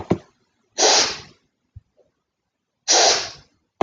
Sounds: Sniff